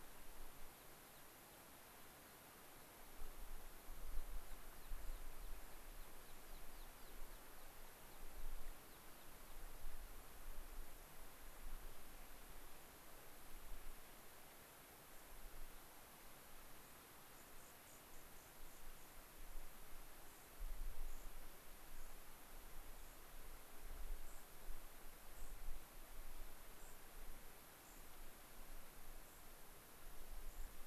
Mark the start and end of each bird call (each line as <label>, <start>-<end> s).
American Pipit (Anthus rubescens), 4.0-9.6 s
unidentified bird, 17.3-19.1 s
unidentified bird, 21.0-21.3 s
unidentified bird, 21.9-22.2 s
unidentified bird, 22.9-23.2 s
unidentified bird, 24.2-24.5 s
unidentified bird, 25.3-25.6 s
unidentified bird, 26.7-27.0 s
unidentified bird, 27.8-28.0 s
unidentified bird, 29.2-29.5 s
unidentified bird, 30.4-30.7 s